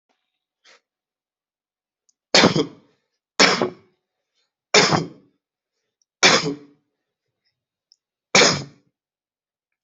{"expert_labels": [{"quality": "good", "cough_type": "wet", "dyspnea": false, "wheezing": false, "stridor": false, "choking": false, "congestion": false, "nothing": true, "diagnosis": "COVID-19", "severity": "mild"}], "gender": "male", "respiratory_condition": false, "fever_muscle_pain": false, "status": "COVID-19"}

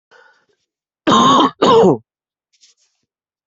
{"expert_labels": [{"quality": "good", "cough_type": "dry", "dyspnea": false, "wheezing": false, "stridor": false, "choking": false, "congestion": false, "nothing": true, "diagnosis": "lower respiratory tract infection", "severity": "mild"}], "age": 25, "gender": "male", "respiratory_condition": true, "fever_muscle_pain": false, "status": "COVID-19"}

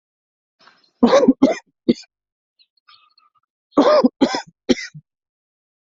{"expert_labels": [{"quality": "good", "cough_type": "wet", "dyspnea": false, "wheezing": false, "stridor": false, "choking": false, "congestion": false, "nothing": true, "diagnosis": "lower respiratory tract infection", "severity": "mild"}], "gender": "female", "respiratory_condition": true, "fever_muscle_pain": false, "status": "symptomatic"}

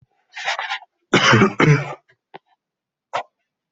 {"expert_labels": [{"quality": "poor", "cough_type": "dry", "dyspnea": false, "wheezing": false, "stridor": false, "choking": false, "congestion": false, "nothing": true, "diagnosis": "COVID-19", "severity": "mild"}], "age": 27, "gender": "male", "respiratory_condition": false, "fever_muscle_pain": false, "status": "symptomatic"}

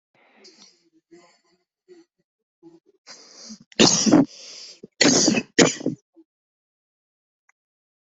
{"expert_labels": [{"quality": "poor", "cough_type": "unknown", "dyspnea": false, "wheezing": false, "stridor": false, "choking": false, "congestion": false, "nothing": true, "diagnosis": "lower respiratory tract infection", "severity": "mild"}], "age": 43, "gender": "female", "respiratory_condition": false, "fever_muscle_pain": false, "status": "COVID-19"}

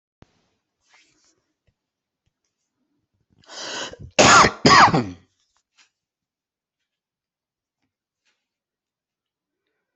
{"expert_labels": [{"quality": "ok", "cough_type": "dry", "dyspnea": false, "wheezing": false, "stridor": false, "choking": false, "congestion": false, "nothing": true, "diagnosis": "COVID-19", "severity": "mild"}], "gender": "female", "respiratory_condition": false, "fever_muscle_pain": false, "status": "COVID-19"}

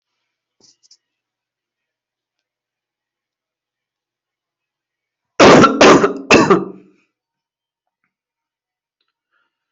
{"expert_labels": [{"quality": "good", "cough_type": "dry", "dyspnea": false, "wheezing": false, "stridor": false, "choking": false, "congestion": false, "nothing": true, "diagnosis": "COVID-19", "severity": "mild"}], "age": 32, "gender": "male", "respiratory_condition": false, "fever_muscle_pain": true, "status": "symptomatic"}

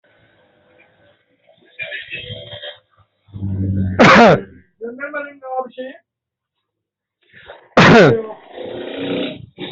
{"expert_labels": [{"quality": "poor", "cough_type": "dry", "dyspnea": false, "wheezing": false, "stridor": false, "choking": false, "congestion": false, "nothing": false, "diagnosis": "upper respiratory tract infection", "severity": "unknown"}], "age": 38, "gender": "female", "respiratory_condition": true, "fever_muscle_pain": false, "status": "COVID-19"}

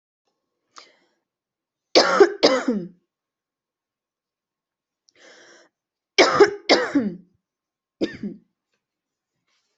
{"expert_labels": [{"quality": "good", "cough_type": "dry", "dyspnea": false, "wheezing": false, "stridor": false, "choking": false, "congestion": false, "nothing": true, "diagnosis": "upper respiratory tract infection", "severity": "mild"}], "age": 40, "gender": "female", "respiratory_condition": false, "fever_muscle_pain": true, "status": "symptomatic"}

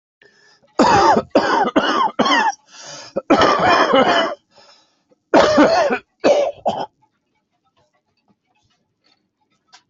{"expert_labels": [{"quality": "good", "cough_type": "wet", "dyspnea": false, "wheezing": true, "stridor": false, "choking": false, "congestion": false, "nothing": true, "diagnosis": "lower respiratory tract infection", "severity": "severe"}], "age": 67, "gender": "male", "respiratory_condition": true, "fever_muscle_pain": false, "status": "symptomatic"}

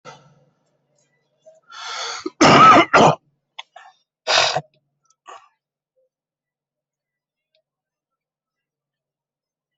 {"expert_labels": [{"quality": "ok", "cough_type": "wet", "dyspnea": false, "wheezing": false, "stridor": false, "choking": false, "congestion": true, "nothing": false, "diagnosis": "lower respiratory tract infection", "severity": "mild"}], "age": 44, "gender": "male", "respiratory_condition": false, "fever_muscle_pain": false, "status": "symptomatic"}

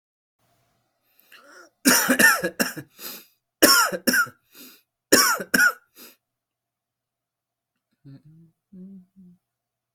{"expert_labels": [{"quality": "good", "cough_type": "dry", "dyspnea": false, "wheezing": false, "stridor": true, "choking": false, "congestion": true, "nothing": false, "diagnosis": "upper respiratory tract infection", "severity": "mild"}], "age": 27, "gender": "male", "respiratory_condition": false, "fever_muscle_pain": true, "status": "healthy"}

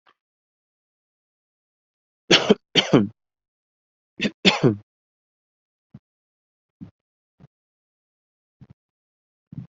{"expert_labels": [{"quality": "good", "cough_type": "dry", "dyspnea": false, "wheezing": false, "stridor": false, "choking": false, "congestion": false, "nothing": true, "diagnosis": "healthy cough", "severity": "pseudocough/healthy cough"}], "age": 28, "gender": "male", "respiratory_condition": false, "fever_muscle_pain": false, "status": "symptomatic"}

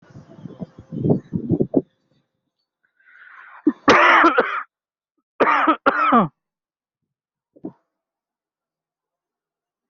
{"expert_labels": [{"quality": "good", "cough_type": "dry", "dyspnea": false, "wheezing": false, "stridor": false, "choking": false, "congestion": false, "nothing": true, "diagnosis": "COVID-19", "severity": "mild"}]}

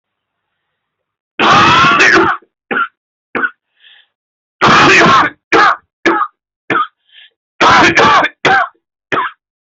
{"expert_labels": [{"quality": "good", "cough_type": "wet", "dyspnea": false, "wheezing": false, "stridor": false, "choking": false, "congestion": false, "nothing": true, "diagnosis": "lower respiratory tract infection", "severity": "severe"}], "gender": "female", "respiratory_condition": false, "fever_muscle_pain": false, "status": "COVID-19"}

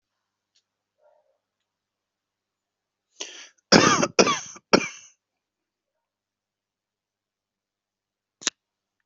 {"expert_labels": [{"quality": "good", "cough_type": "dry", "dyspnea": false, "wheezing": false, "stridor": false, "choking": false, "congestion": false, "nothing": true, "diagnosis": "COVID-19", "severity": "mild"}], "age": 50, "gender": "male", "respiratory_condition": false, "fever_muscle_pain": false, "status": "healthy"}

